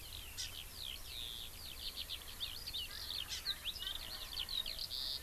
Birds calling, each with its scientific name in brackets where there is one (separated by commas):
Eurasian Skylark (Alauda arvensis), Hawaii Amakihi (Chlorodrepanis virens)